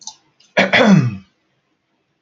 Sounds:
Throat clearing